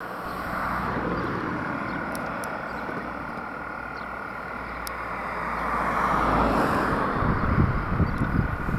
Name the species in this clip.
Gryllotalpa gryllotalpa